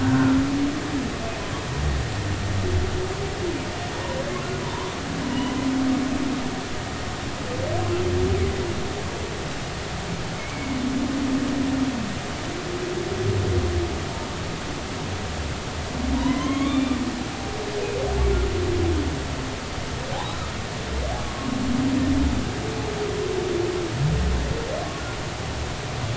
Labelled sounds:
0.0	0.4	humpback whale, 1.3 to 1.6 kHz
5.3	5.5	humpback whale, 2.8 to 3.1 kHz
11.3	11.8	humpback whale, 2.1 to 2.4 kHz
16.1	17.0	humpback whale, 0.90 to 3.6 kHz
21.2	21.5	humpback whale, 1.0 to 1.2 kHz

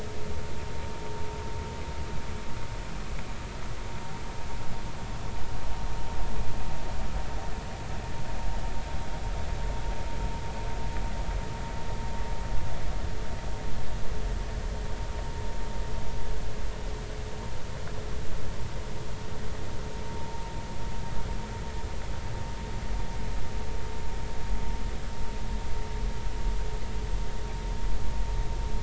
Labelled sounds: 20.2	20.4	vessel noise, 0.83 to 0.99 kHz

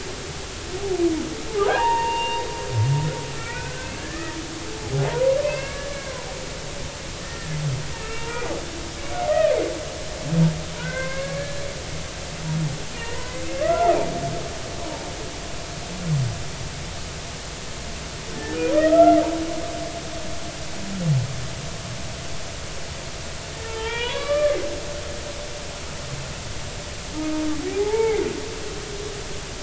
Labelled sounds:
1.5	2.4	humpback whale, 0.80 to 6.6 kHz
3.3	4.4	humpback whale, 1.3 to 2.6 kHz
5.0	5.9	humpback whale, 0.80 to 2.8 kHz
7.2	8.3	humpback whale, 1.3 to 2.8 kHz
10.8	11.6	humpback whale, 0.99 to 2.2 kHz
13.0	14.0	humpback whale, 0.86 to 2.1 kHz
14.7	15.0	humpback whale, 0.80 to 1.1 kHz
18.7	19.2	humpback whale, 1.2 to 1.5 kHz
23.6	24.6	humpback whale, 0.83 to 4.7 kHz
27.1	28.2	humpback whale, 0.80 to 2.3 kHz

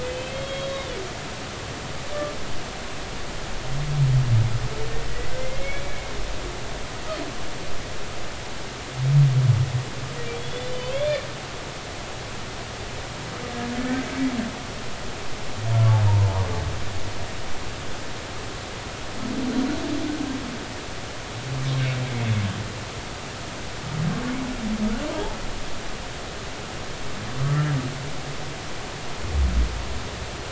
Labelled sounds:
0.0	0.9	humpback whale, 2.5 to 3.9 kHz
5.4	6.1	humpback whale, 2.0 to 2.4 kHz
10.3	11.2	humpback whale, 3.1 to 3.6 kHz
25.1	25.4	humpback whale, 0.80 to 1.0 kHz

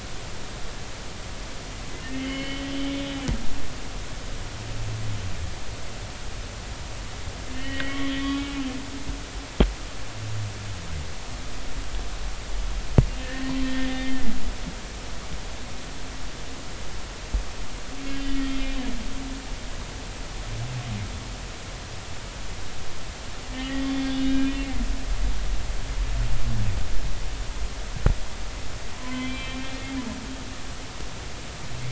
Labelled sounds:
2.1	2.7	humpback whale, 2.0 to 3.1 kHz
7.5	8.5	humpback whale, 1.8 to 3.7 kHz
13.2	13.9	humpback whale, 1.7 to 1.9 kHz
18.1	18.5	humpback whale, 1.8 to 3.1 kHz
23.5	25.5	humpback whale, 1.6 to 3.6 kHz
28.9	29.7	humpback whale, 0.96 to 3.5 kHz

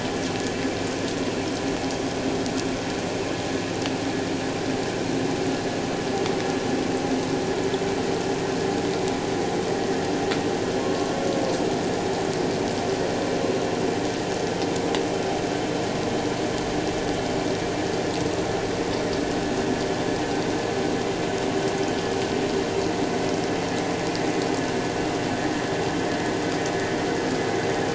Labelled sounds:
10.8	11.1	humpback whale, 1.0 to 1.2 kHz

